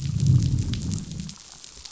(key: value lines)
label: biophony, growl
recorder: SoundTrap 500